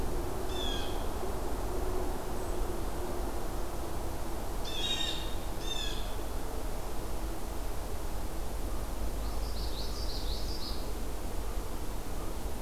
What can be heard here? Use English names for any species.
Blue Jay, Common Yellowthroat